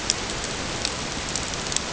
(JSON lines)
{"label": "ambient", "recorder": "HydroMoth"}